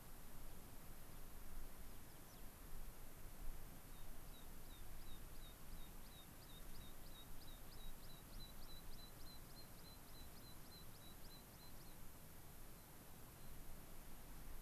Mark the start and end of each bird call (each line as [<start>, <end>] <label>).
[0.20, 2.60] American Pipit (Anthus rubescens)
[3.70, 12.10] American Pipit (Anthus rubescens)